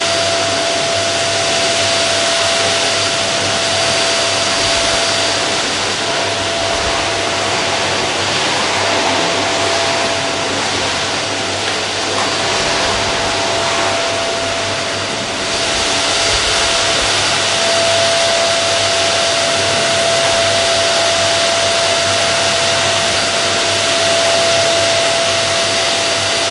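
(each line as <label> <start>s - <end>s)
A vacuum cleaner is running. 0.0s - 6.0s
A vacuum cleaner running quietly. 6.0s - 15.4s
A vacuum cleaner is running. 15.4s - 26.5s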